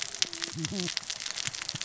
{"label": "biophony, cascading saw", "recorder": "SoundTrap 600 or HydroMoth"}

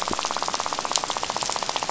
{"label": "biophony, rattle", "recorder": "SoundTrap 500"}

